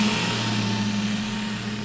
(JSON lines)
{"label": "anthrophony, boat engine", "recorder": "SoundTrap 500"}